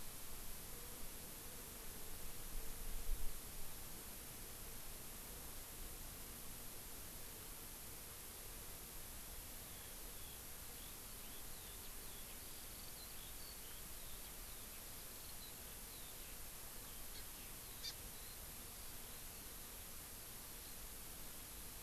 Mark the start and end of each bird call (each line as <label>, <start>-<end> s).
Eurasian Skylark (Alauda arvensis), 9.5-20.8 s
Hawaii Amakihi (Chlorodrepanis virens), 17.8-18.0 s